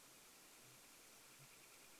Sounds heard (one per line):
Sooty Grouse song
Northern Flicker call